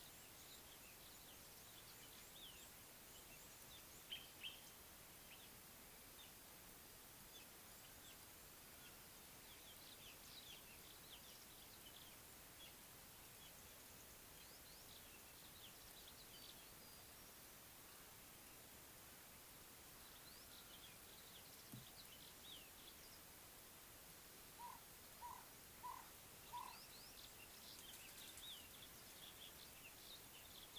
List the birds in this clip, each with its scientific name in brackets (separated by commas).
Ring-necked Dove (Streptopelia capicola), Common Bulbul (Pycnonotus barbatus)